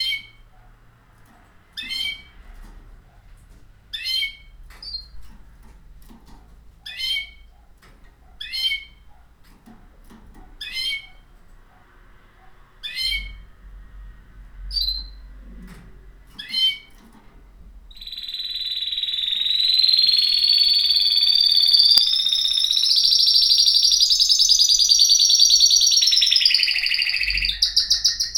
Is the bird communicating with other birds?
yes